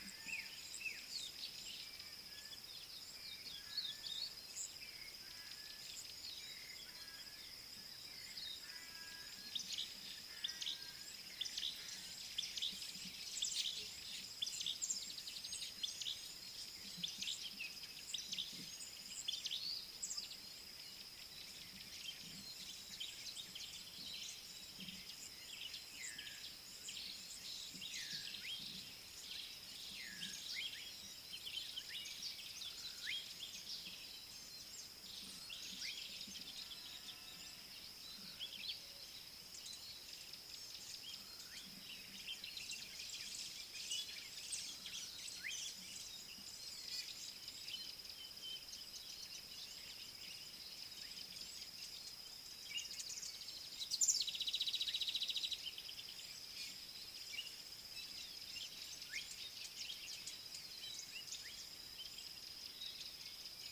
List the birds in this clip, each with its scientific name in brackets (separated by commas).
Singing Cisticola (Cisticola cantans), Slate-colored Boubou (Laniarius funebris), Pale White-eye (Zosterops flavilateralis)